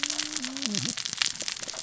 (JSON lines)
{"label": "biophony, cascading saw", "recorder": "SoundTrap 600 or HydroMoth"}